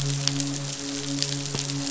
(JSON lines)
{"label": "biophony, midshipman", "recorder": "SoundTrap 500"}